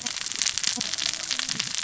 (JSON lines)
{"label": "biophony, cascading saw", "recorder": "SoundTrap 600 or HydroMoth"}